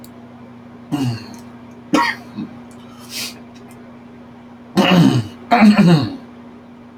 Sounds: Throat clearing